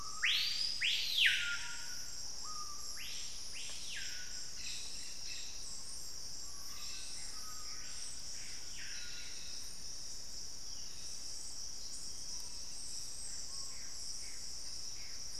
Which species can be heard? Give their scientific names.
Lipaugus vociferans, Brotogeris cyanoptera, Trogon collaris, Cercomacra cinerascens